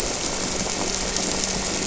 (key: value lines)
label: anthrophony, boat engine
recorder: SoundTrap 300